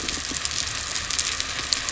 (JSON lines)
{"label": "biophony", "recorder": "SoundTrap 300"}